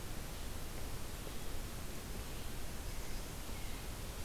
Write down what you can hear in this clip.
American Robin